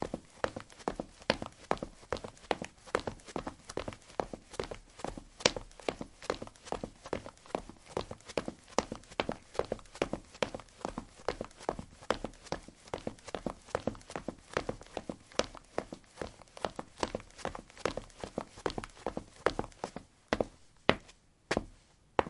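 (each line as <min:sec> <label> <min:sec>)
0:00.0 Someone is walking on a hard surface with loud, repeated footsteps of varying volume. 0:22.3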